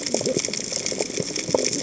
{"label": "biophony, cascading saw", "recorder": "HydroMoth"}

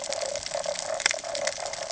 {"label": "ambient", "recorder": "HydroMoth"}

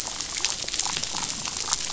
{"label": "biophony, damselfish", "recorder": "SoundTrap 500"}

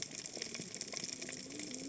{"label": "biophony, cascading saw", "recorder": "HydroMoth"}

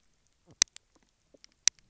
{"label": "biophony, knock croak", "recorder": "SoundTrap 300"}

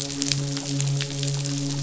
{"label": "biophony, midshipman", "recorder": "SoundTrap 500"}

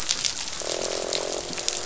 {"label": "biophony, croak", "recorder": "SoundTrap 500"}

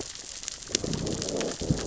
{"label": "biophony, growl", "recorder": "SoundTrap 600 or HydroMoth"}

